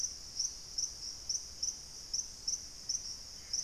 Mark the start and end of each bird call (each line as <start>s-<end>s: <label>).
2.6s-3.6s: Black-faced Antthrush (Formicarius analis)